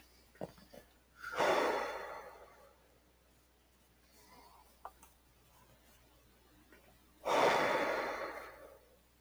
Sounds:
Sigh